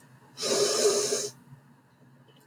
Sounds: Sniff